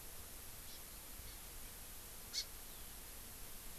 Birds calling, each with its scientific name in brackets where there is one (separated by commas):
Hawaii Amakihi (Chlorodrepanis virens)